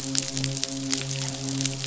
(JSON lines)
{"label": "biophony, midshipman", "recorder": "SoundTrap 500"}